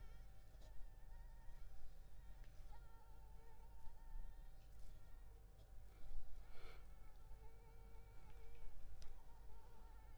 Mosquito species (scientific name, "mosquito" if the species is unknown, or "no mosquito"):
Anopheles arabiensis